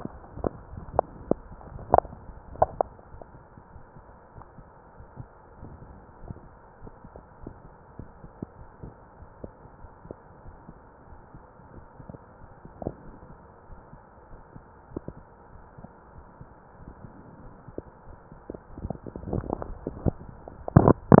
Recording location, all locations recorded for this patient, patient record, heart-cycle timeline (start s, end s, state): aortic valve (AV)
aortic valve (AV)+pulmonary valve (PV)+tricuspid valve (TV)+mitral valve (MV)
#Age: nan
#Sex: Female
#Height: nan
#Weight: nan
#Pregnancy status: True
#Murmur: Absent
#Murmur locations: nan
#Most audible location: nan
#Systolic murmur timing: nan
#Systolic murmur shape: nan
#Systolic murmur grading: nan
#Systolic murmur pitch: nan
#Systolic murmur quality: nan
#Diastolic murmur timing: nan
#Diastolic murmur shape: nan
#Diastolic murmur grading: nan
#Diastolic murmur pitch: nan
#Diastolic murmur quality: nan
#Outcome: Abnormal
#Campaign: 2015 screening campaign
0.00	3.73	unannotated
3.73	3.83	S1
3.83	3.94	systole
3.94	4.01	S2
4.01	4.34	diastole
4.34	4.44	S1
4.44	4.56	systole
4.56	4.63	S2
4.63	4.98	diastole
4.98	5.06	S1
5.06	5.15	systole
5.15	5.22	S2
5.22	5.60	diastole
5.60	5.68	S1
5.68	5.80	systole
5.80	5.86	S2
5.86	6.21	diastole
6.21	6.29	S1
6.29	6.42	systole
6.42	6.48	S2
6.48	6.81	diastole
6.81	6.90	S1
6.90	7.02	systole
7.02	7.08	S2
7.08	7.41	diastole
7.41	7.50	S1
7.50	7.62	systole
7.62	7.69	S2
7.69	7.98	diastole
7.98	8.07	S1
8.07	8.22	systole
8.22	8.28	S2
8.28	8.58	diastole
8.58	8.66	S1
8.66	8.82	systole
8.82	8.89	S2
8.89	9.18	diastole
9.18	9.27	S1
9.27	9.43	systole
9.43	9.50	S2
9.50	9.80	diastole
9.80	9.88	S1
9.88	10.03	systole
10.03	10.11	S2
10.11	10.44	diastole
10.44	10.52	S1
10.52	21.20	unannotated